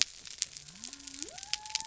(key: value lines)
label: biophony
recorder: SoundTrap 300